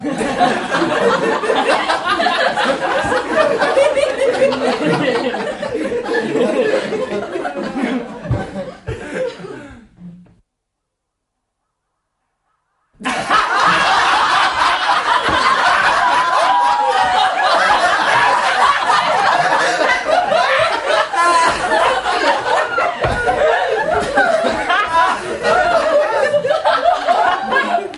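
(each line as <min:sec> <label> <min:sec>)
0:00.0 A group of people laughing loudly and joyfully, with the laughter gradually fading. 0:10.4
0:13.0 A group of people laughing hysterically and intensely with consistent loudness. 0:28.0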